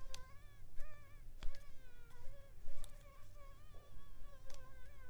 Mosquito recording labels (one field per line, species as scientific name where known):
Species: Mansonia uniformis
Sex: female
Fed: unfed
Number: one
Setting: cup